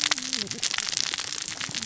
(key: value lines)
label: biophony, cascading saw
recorder: SoundTrap 600 or HydroMoth